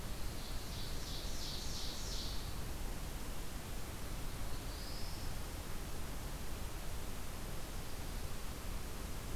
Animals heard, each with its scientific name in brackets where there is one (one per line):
Black-throated Blue Warbler (Setophaga caerulescens)
Ovenbird (Seiurus aurocapilla)